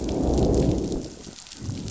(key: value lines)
label: biophony, growl
recorder: SoundTrap 500